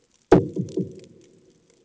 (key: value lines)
label: anthrophony, bomb
recorder: HydroMoth